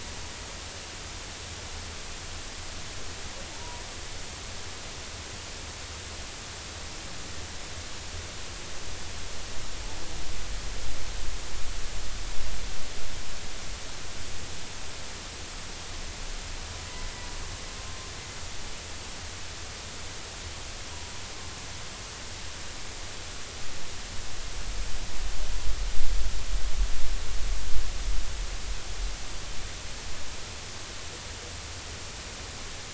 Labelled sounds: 3.5	3.9	humpback whale, 0.86 to 1.1 kHz

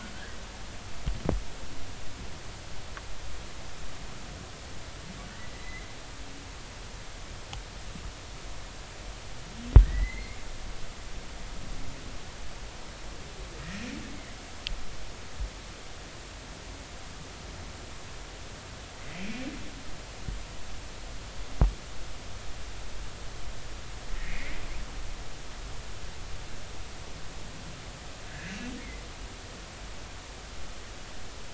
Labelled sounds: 0.1	0.4	humpback whale, 1.4 to 1.8 kHz
5.5	5.9	humpback whale, 2.0 to 2.1 kHz
9.8	10.4	humpback whale, 1.7 to 2.3 kHz
13.6	13.9	humpback whale, 1.8 to 2.0 kHz
19.2	19.4	humpback whale, 2.2 to 2.6 kHz
24.2	24.5	humpback whale, 1.8 to 2.5 kHz
28.3	28.6	humpback whale, 1.5 to 1.8 kHz

